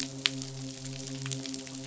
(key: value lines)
label: biophony, midshipman
recorder: SoundTrap 500